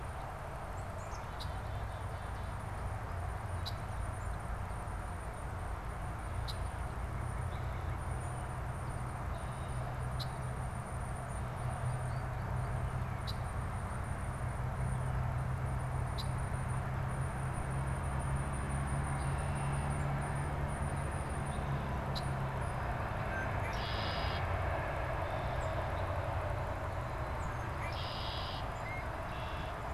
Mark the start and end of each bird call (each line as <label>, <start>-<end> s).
Black-capped Chickadee (Poecile atricapillus), 0.0-13.0 s
Tufted Titmouse (Baeolophus bicolor), 0.0-22.5 s
Red-winged Blackbird (Agelaius phoeniceus), 1.2-1.6 s
Red-winged Blackbird (Agelaius phoeniceus), 3.5-3.8 s
Red-winged Blackbird (Agelaius phoeniceus), 6.3-6.7 s
Northern Cardinal (Cardinalis cardinalis), 6.8-8.3 s
Red-winged Blackbird (Agelaius phoeniceus), 10.1-10.3 s
Red-winged Blackbird (Agelaius phoeniceus), 13.1-13.4 s
Red-winged Blackbird (Agelaius phoeniceus), 16.0-16.4 s
Red-winged Blackbird (Agelaius phoeniceus), 18.9-20.1 s
Red-winged Blackbird (Agelaius phoeniceus), 22.0-22.3 s
Red-winged Blackbird (Agelaius phoeniceus), 23.1-24.8 s
Tufted Titmouse (Baeolophus bicolor), 25.4-25.8 s
Tufted Titmouse (Baeolophus bicolor), 27.3-27.7 s
Red-winged Blackbird (Agelaius phoeniceus), 27.7-29.8 s